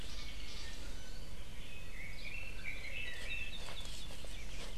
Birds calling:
Iiwi (Drepanis coccinea), Red-billed Leiothrix (Leiothrix lutea), Hawaii Akepa (Loxops coccineus)

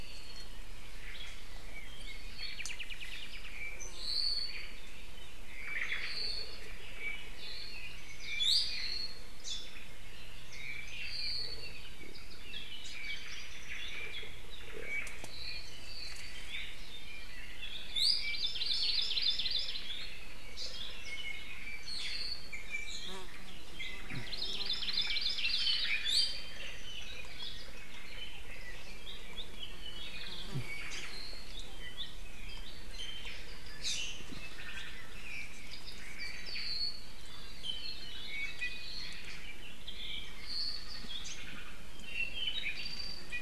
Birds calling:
Hawaii Creeper (Loxops mana), Omao (Myadestes obscurus), Iiwi (Drepanis coccinea), Hawaii Amakihi (Chlorodrepanis virens), Apapane (Himatione sanguinea)

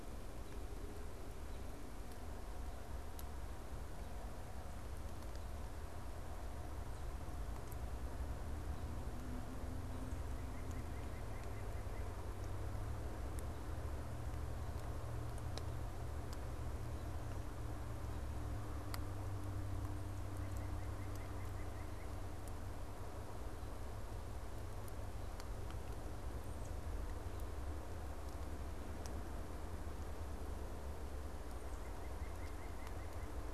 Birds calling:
White-breasted Nuthatch (Sitta carolinensis)

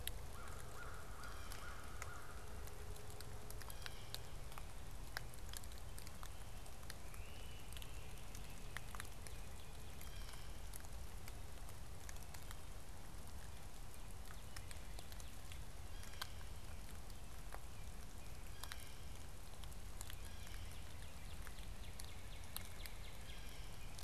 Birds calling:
Blue Jay (Cyanocitta cristata), Great Crested Flycatcher (Myiarchus crinitus), Northern Cardinal (Cardinalis cardinalis), American Crow (Corvus brachyrhynchos)

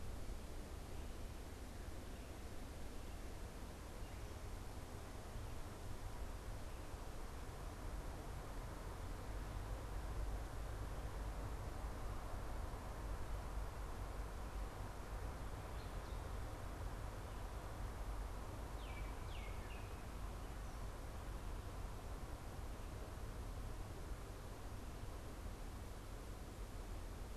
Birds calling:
Baltimore Oriole (Icterus galbula)

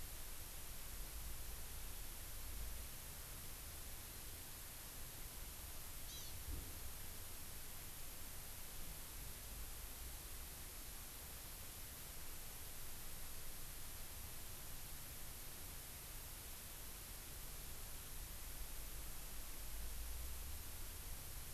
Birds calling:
Hawaii Amakihi (Chlorodrepanis virens)

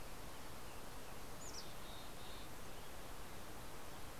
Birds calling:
American Robin (Turdus migratorius), Mountain Chickadee (Poecile gambeli)

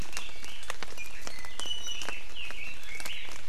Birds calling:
Iiwi (Drepanis coccinea), Red-billed Leiothrix (Leiothrix lutea)

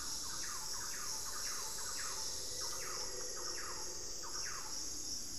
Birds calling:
Thrush-like Wren (Campylorhynchus turdinus), Black-faced Antthrush (Formicarius analis), unidentified bird, Pygmy Antwren (Myrmotherula brachyura)

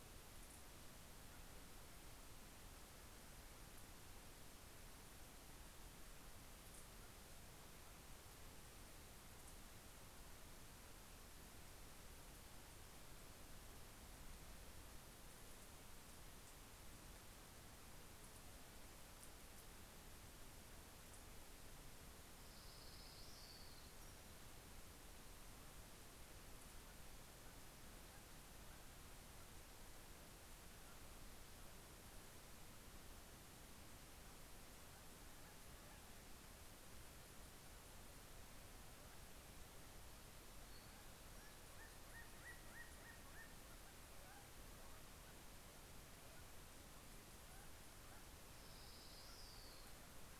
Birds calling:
Orange-crowned Warbler (Leiothlypis celata), Northern Flicker (Colaptes auratus)

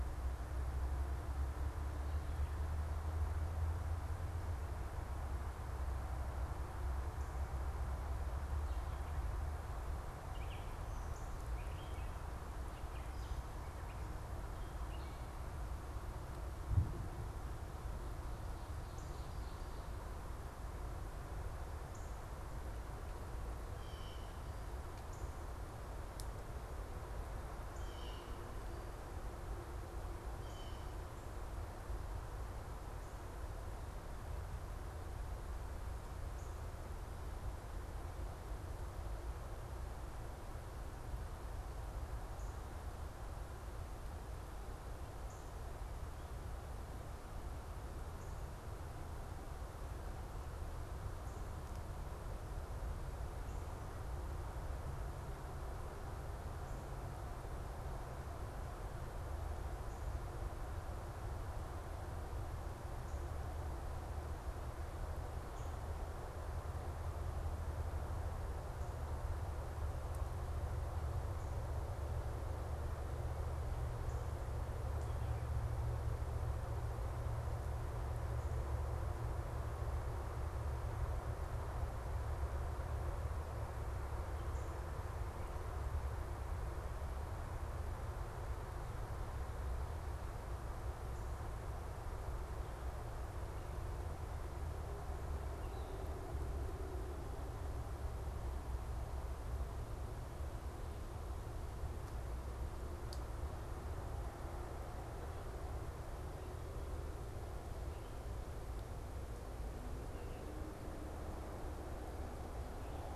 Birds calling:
Gray Catbird (Dumetella carolinensis), Northern Cardinal (Cardinalis cardinalis), Blue Jay (Cyanocitta cristata)

